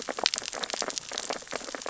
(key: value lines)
label: biophony, sea urchins (Echinidae)
recorder: SoundTrap 600 or HydroMoth